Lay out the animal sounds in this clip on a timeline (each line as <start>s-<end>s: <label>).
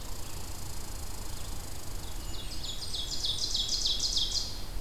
0.0s-2.3s: Red Squirrel (Tamiasciurus hudsonicus)
0.0s-2.9s: Red-eyed Vireo (Vireo olivaceus)
1.8s-4.7s: Ovenbird (Seiurus aurocapilla)
1.8s-3.7s: Blackburnian Warbler (Setophaga fusca)